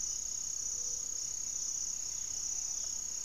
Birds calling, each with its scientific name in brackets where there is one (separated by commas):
Great Antshrike (Taraba major), Buff-breasted Wren (Cantorchilus leucotis), Gray-fronted Dove (Leptotila rufaxilla)